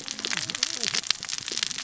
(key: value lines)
label: biophony, cascading saw
recorder: SoundTrap 600 or HydroMoth